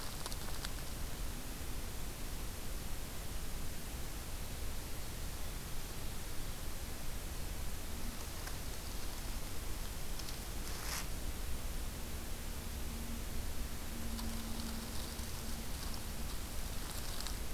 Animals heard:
forest ambience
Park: Hubbard Brook Experimental Forest